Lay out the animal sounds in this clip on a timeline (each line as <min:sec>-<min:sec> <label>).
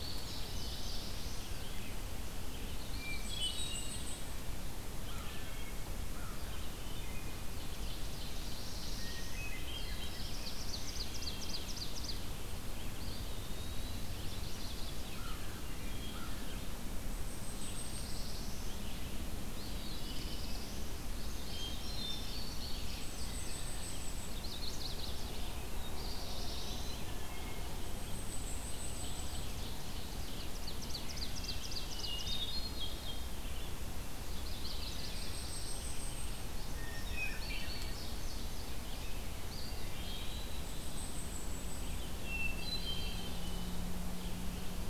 0:00.0-0:01.3 Indigo Bunting (Passerina cyanea)
0:00.0-0:40.3 Red-eyed Vireo (Vireo olivaceus)
0:00.3-0:01.5 Black-throated Blue Warbler (Setophaga caerulescens)
0:02.7-0:03.7 Chestnut-sided Warbler (Setophaga pensylvanica)
0:02.9-0:04.2 Hermit Thrush (Catharus guttatus)
0:02.9-0:04.5 Blackpoll Warbler (Setophaga striata)
0:05.0-0:06.5 American Crow (Corvus brachyrhynchos)
0:05.2-0:05.8 Wood Thrush (Hylocichla mustelina)
0:06.8-0:07.3 Wood Thrush (Hylocichla mustelina)
0:07.4-0:08.9 Ovenbird (Seiurus aurocapilla)
0:08.1-0:11.2 Black-throated Blue Warbler (Setophaga caerulescens)
0:08.9-0:10.3 Hermit Thrush (Catharus guttatus)
0:10.2-0:12.3 Ovenbird (Seiurus aurocapilla)
0:10.8-0:11.7 Wood Thrush (Hylocichla mustelina)
0:12.9-0:14.2 Eastern Wood-Pewee (Contopus virens)
0:13.9-0:15.2 Chestnut-sided Warbler (Setophaga pensylvanica)
0:15.1-0:16.4 American Crow (Corvus brachyrhynchos)
0:15.5-0:16.2 Wood Thrush (Hylocichla mustelina)
0:17.0-0:18.4 Blackpoll Warbler (Setophaga striata)
0:17.5-0:18.9 Black-throated Blue Warbler (Setophaga caerulescens)
0:19.4-0:21.1 Black-throated Blue Warbler (Setophaga caerulescens)
0:19.5-0:20.5 Eastern Wood-Pewee (Contopus virens)
0:20.9-0:23.8 Indigo Bunting (Passerina cyanea)
0:21.4-0:22.5 Hermit Thrush (Catharus guttatus)
0:22.8-0:24.5 Blackpoll Warbler (Setophaga striata)
0:24.2-0:25.5 Chestnut-sided Warbler (Setophaga pensylvanica)
0:25.6-0:27.1 Black-throated Blue Warbler (Setophaga caerulescens)
0:25.9-0:27.1 Eastern Wood-Pewee (Contopus virens)
0:27.0-0:27.7 Wood Thrush (Hylocichla mustelina)
0:27.6-0:29.6 Blackpoll Warbler (Setophaga striata)
0:28.5-0:32.4 Ovenbird (Seiurus aurocapilla)
0:31.1-0:31.7 Wood Thrush (Hylocichla mustelina)
0:31.6-0:33.5 Hermit Thrush (Catharus guttatus)
0:34.2-0:35.5 Chestnut-sided Warbler (Setophaga pensylvanica)
0:34.5-0:36.2 Black-throated Blue Warbler (Setophaga caerulescens)
0:35.0-0:36.4 Blackpoll Warbler (Setophaga striata)
0:36.8-0:38.0 Hermit Thrush (Catharus guttatus)
0:36.8-0:39.2 Indigo Bunting (Passerina cyanea)
0:39.3-0:40.9 Eastern Wood-Pewee (Contopus virens)
0:40.5-0:42.0 Blackpoll Warbler (Setophaga striata)
0:41.7-0:44.9 Red-eyed Vireo (Vireo olivaceus)
0:42.2-0:43.8 Hermit Thrush (Catharus guttatus)